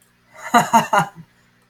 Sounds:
Laughter